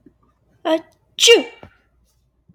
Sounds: Sneeze